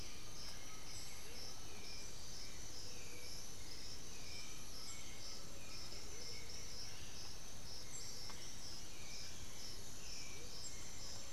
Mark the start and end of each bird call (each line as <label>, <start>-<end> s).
Amazonian Motmot (Momotus momota), 0.0-10.6 s
Black-billed Thrush (Turdus ignobilis), 0.0-11.3 s
Undulated Tinamou (Crypturellus undulatus), 0.0-11.3 s
White-winged Becard (Pachyramphus polychopterus), 0.0-11.3 s
unidentified bird, 0.3-1.6 s